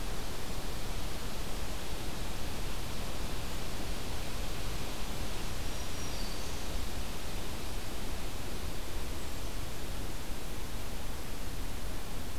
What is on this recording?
Black-throated Green Warbler